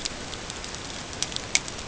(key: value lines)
label: ambient
recorder: HydroMoth